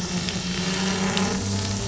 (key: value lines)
label: anthrophony, boat engine
recorder: SoundTrap 500